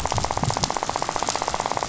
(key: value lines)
label: biophony, rattle
recorder: SoundTrap 500